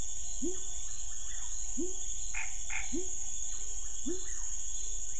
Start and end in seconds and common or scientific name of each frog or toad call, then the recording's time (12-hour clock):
0.0	4.4	pepper frog
2.3	3.0	Scinax fuscovarius
9:00pm